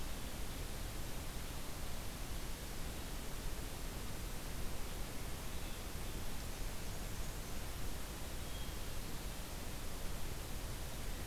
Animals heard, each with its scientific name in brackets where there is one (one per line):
Black-and-white Warbler (Mniotilta varia)
Hermit Thrush (Catharus guttatus)